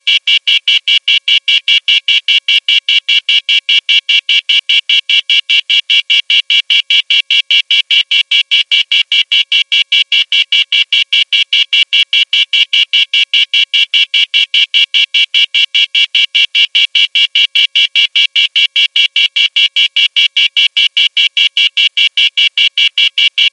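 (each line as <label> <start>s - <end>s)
A loud, repeating out-of-service tone. 0.0s - 23.5s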